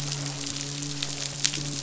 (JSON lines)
{"label": "biophony, midshipman", "recorder": "SoundTrap 500"}